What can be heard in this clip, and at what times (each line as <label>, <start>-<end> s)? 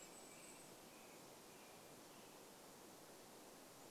American Robin song, 0-2 s
Golden-crowned Kinglet song, 0-2 s
Western Tanager song, 2-4 s